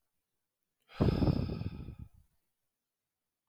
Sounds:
Sigh